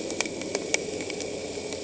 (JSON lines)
{"label": "anthrophony, boat engine", "recorder": "HydroMoth"}